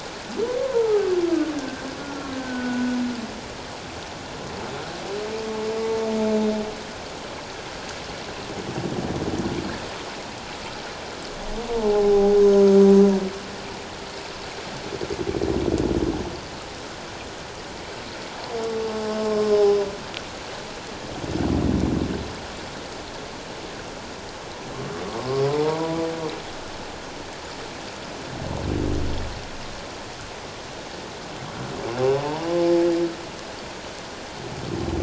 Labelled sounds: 0.6	3.0	humpback whale, 0.81 to 1.7 kHz
11.7	12.7	humpback whale, 0.78 to 6.3 kHz
19.2	19.9	humpback whale, 0.94 to 5.3 kHz
25.5	26.0	humpback whale, 0.88 to 1.0 kHz
32.2	32.6	humpback whale, 0.84 to 1.1 kHz

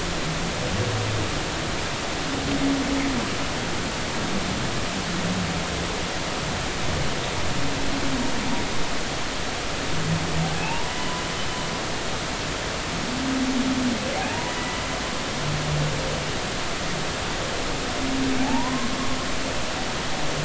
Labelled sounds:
10.6	10.9	humpback whale, 0.80 to 2.9 kHz
14.3	14.8	humpback whale, 0.83 to 2.0 kHz
18.4	18.9	humpback whale, 0.80 to 1.1 kHz

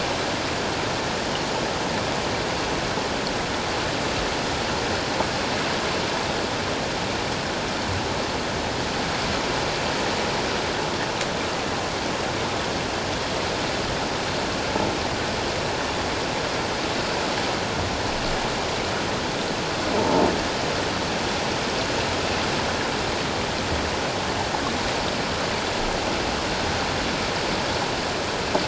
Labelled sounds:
20.0	20.3	croaking sound likely from a nearby submerged object, 0.84 to 0.97 kHz

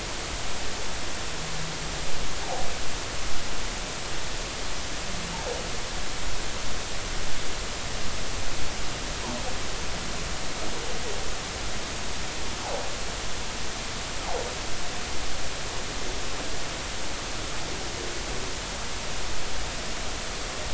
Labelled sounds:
2.4	2.7	humpback whale, 0.80 to 0.93 kHz

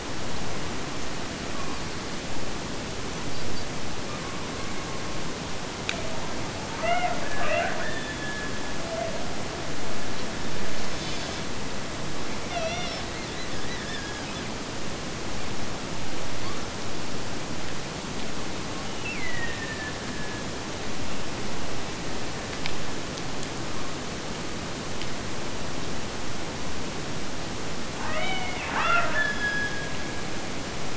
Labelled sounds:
6.7	8.9	killer whale, Bigg's (transient), Gulf of Alaska transient, 0.35 to 3.8 kHz
12.5	14.5	killer whale, Bigg's (transient), Gulf of Alaska transient, 0.41 to 3.6 kHz
18.9	20.5	killer whale, Bigg's (transient), Gulf of Alaska transient, 1.6 to 2.9 kHz
28.1	30.2	killer whale, Bigg's (transient), Gulf of Alaska transient, 0.43 to 5.4 kHz

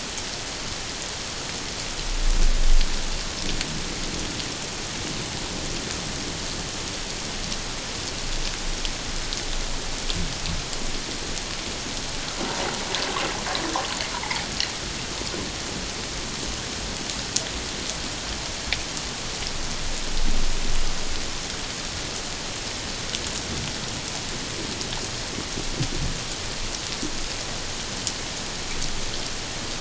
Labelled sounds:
12.5	12.7	water noise, 0.78 to 1.0 kHz
14.1	14.4	water noise, 0.81 to 1.0 kHz

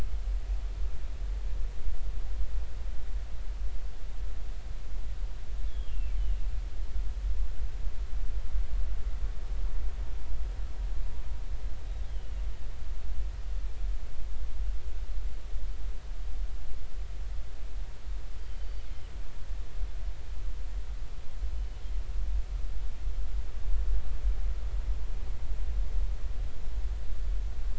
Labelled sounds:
5.7	6.4	killer whale, northern resident, G clan, GG subclan, 2.2 to 3.6 kHz
12.0	12.4	killer whale, northern resident, G clan, GG subclan, 2.8 to 3.4 kHz

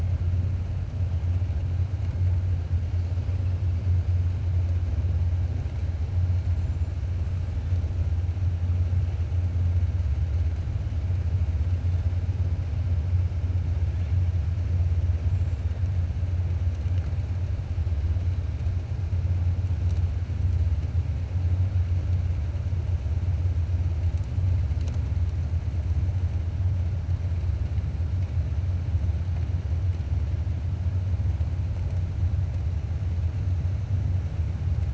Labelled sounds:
6.5	6.9	killer whale, 6.4 to 7.7 kHz

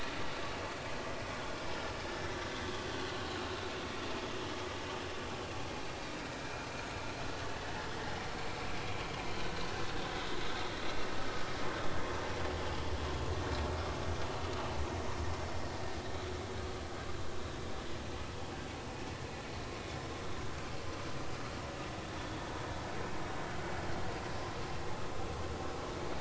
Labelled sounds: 6.3	6.7	vessel noise, 2.3 to 2.5 kHz
9.4	9.6	vessel noise, 1.5 to 1.6 kHz

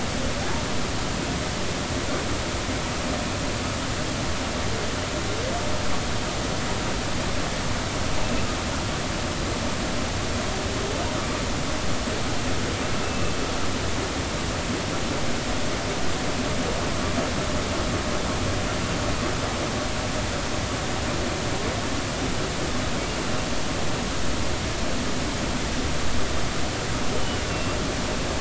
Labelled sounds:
8.2	8.5	humpback whale, 2.5 to 2.8 kHz
13.0	13.4	humpback whale, 2.6 to 2.7 kHz
27.5	27.7	humpback whale, 2.7 to 2.8 kHz

